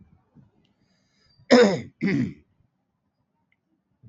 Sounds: Throat clearing